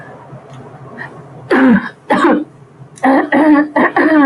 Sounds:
Throat clearing